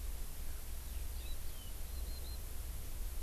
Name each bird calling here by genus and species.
Alauda arvensis